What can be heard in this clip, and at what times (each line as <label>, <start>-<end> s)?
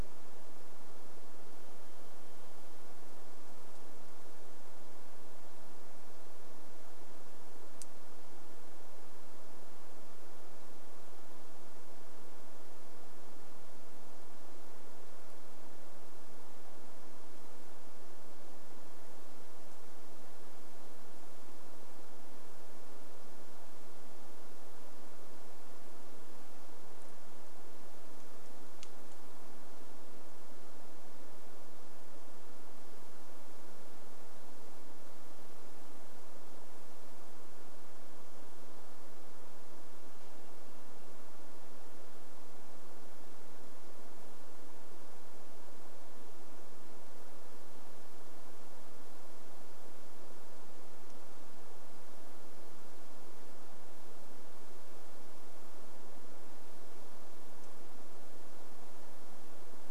Varied Thrush song, 0-4 s
Varied Thrush song, 40-42 s